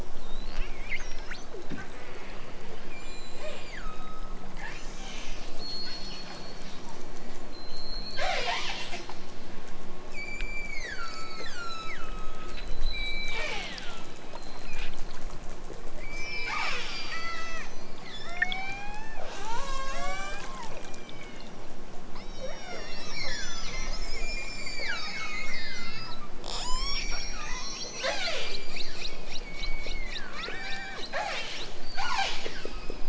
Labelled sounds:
0.9	1.5	killer whale, southern Alaska resident, 0.69 to 7.3 kHz
2.9	4.5	killer whale, southern Alaska resident, 0.28 to 8.0 kHz
7.5	9.0	killer whale, southern Alaska resident, 0.41 to 8.0 kHz
10.2	14.3	killer whale, southern Alaska resident, 0.23 to 8.0 kHz
16.0	21.6	killer whale, southern Alaska resident, 0.18 to 8.0 kHz
22.2	28.8	killer whale, southern Alaska resident, 0.18 to 8.0 kHz
29.4	33.0	killer whale, southern Alaska resident, 0.32 to 8.0 kHz

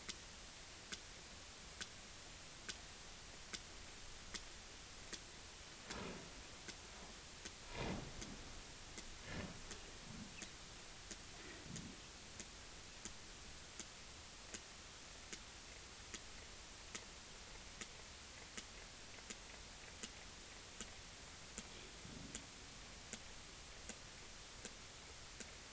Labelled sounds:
11.4	11.6	sperm whale, 1.8 to 2.0 kHz

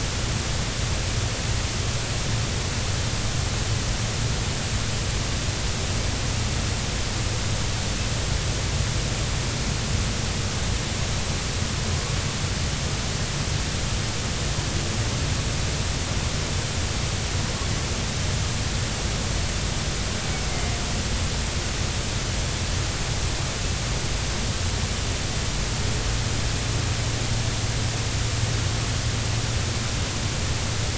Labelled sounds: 20.5	20.8	killer whale, northern resident, A clan, AB subclan, 2.0 to 2.2 kHz

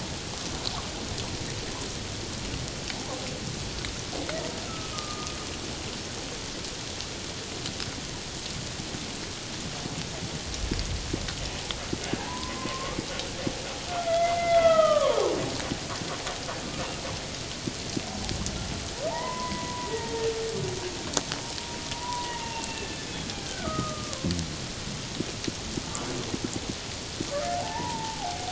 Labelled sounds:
4.6	5.4	humpback whale, 1.1 to 1.4 kHz
12.2	13.0	humpback whale, 0.78 to 1.2 kHz
13.9	15.3	humpback whale, 0.78 to 3.4 kHz
19.1	20.3	humpback whale, 0.78 to 2.1 kHz
21.9	23.0	humpback whale, 0.84 to 2.8 kHz
23.4	24.3	humpback whale, 0.97 to 1.7 kHz
27.5	28.4	humpback whale, 0.78 to 2.0 kHz

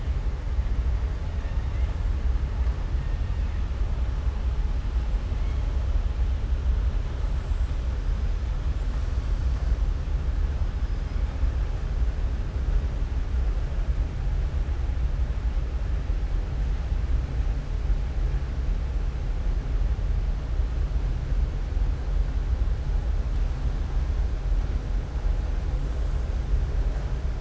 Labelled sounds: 1.3	1.9	killer whale, southern resident, 0.96 to 3.0 kHz

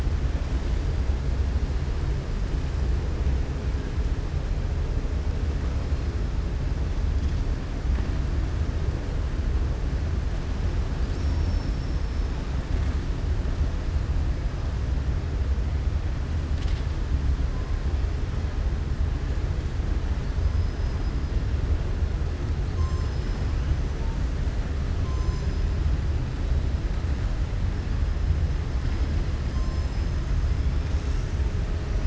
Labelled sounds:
20.4	21.2	killer whale, southern resident, 4.9 to 5.6 kHz

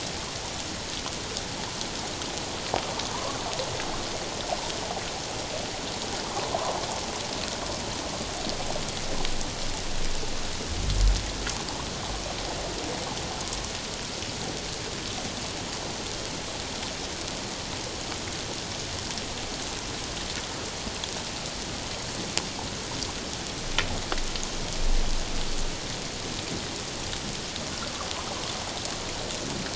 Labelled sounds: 3.1	3.4	water noise, 0.88 to 1.2 kHz

